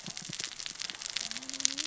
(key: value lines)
label: biophony, cascading saw
recorder: SoundTrap 600 or HydroMoth